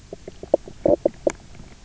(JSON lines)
{"label": "biophony, knock croak", "recorder": "SoundTrap 300"}